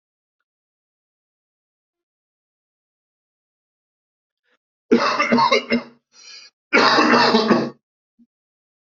{"expert_labels": [{"quality": "good", "cough_type": "dry", "dyspnea": false, "wheezing": false, "stridor": false, "choking": false, "congestion": false, "nothing": true, "diagnosis": "lower respiratory tract infection", "severity": "mild"}], "age": 35, "gender": "male", "respiratory_condition": true, "fever_muscle_pain": false, "status": "symptomatic"}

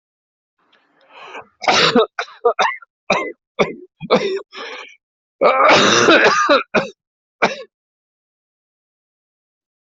{"expert_labels": [{"quality": "good", "cough_type": "wet", "dyspnea": false, "wheezing": false, "stridor": false, "choking": false, "congestion": false, "nothing": true, "diagnosis": "lower respiratory tract infection", "severity": "severe"}]}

